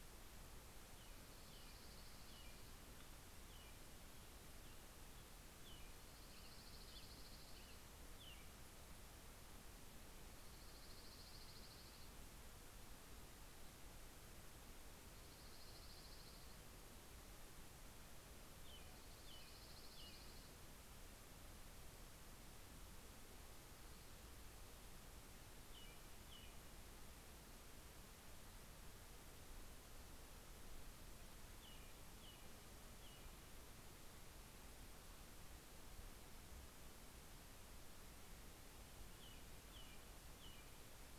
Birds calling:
Dark-eyed Junco (Junco hyemalis), American Robin (Turdus migratorius)

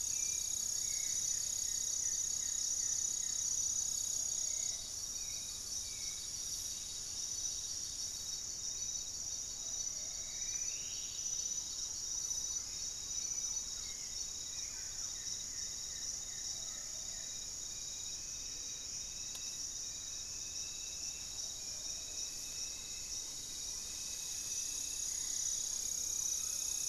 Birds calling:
Mealy Parrot (Amazona farinosa), unidentified bird, Goeldi's Antbird (Akletos goeldii), Plain-winged Antshrike (Thamnophilus schistaceus), Hauxwell's Thrush (Turdus hauxwelli), Black-tailed Trogon (Trogon melanurus), Thrush-like Wren (Campylorhynchus turdinus), Black-faced Antthrush (Formicarius analis), Striped Woodcreeper (Xiphorhynchus obsoletus), Plumbeous Pigeon (Patagioenas plumbea)

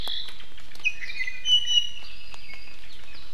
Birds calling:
Apapane (Himatione sanguinea), Omao (Myadestes obscurus), Iiwi (Drepanis coccinea)

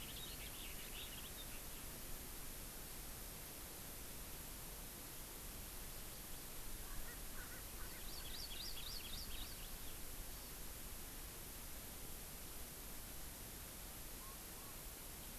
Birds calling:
Erckel's Francolin (Pternistis erckelii), Hawaii Amakihi (Chlorodrepanis virens)

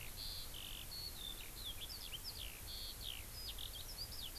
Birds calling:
Eurasian Skylark (Alauda arvensis)

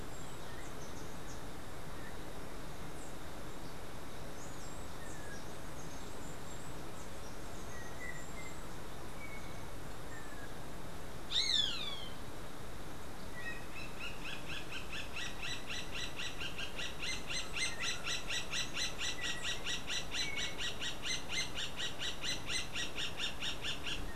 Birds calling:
Steely-vented Hummingbird (Saucerottia saucerottei), Roadside Hawk (Rupornis magnirostris), Yellow-backed Oriole (Icterus chrysater)

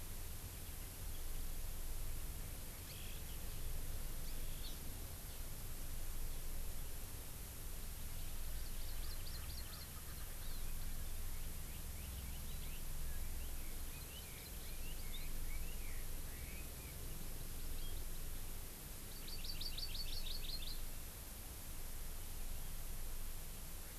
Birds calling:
Erckel's Francolin (Pternistis erckelii), Hawaii Amakihi (Chlorodrepanis virens), Red-billed Leiothrix (Leiothrix lutea)

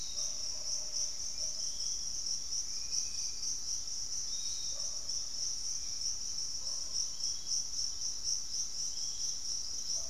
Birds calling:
Pygmy Antwren (Myrmotherula brachyura), Piratic Flycatcher (Legatus leucophaius), Spot-winged Antshrike (Pygiptila stellaris), unidentified bird

